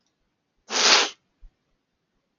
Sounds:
Sniff